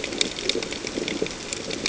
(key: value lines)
label: ambient
recorder: HydroMoth